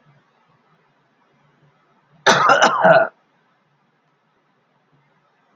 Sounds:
Cough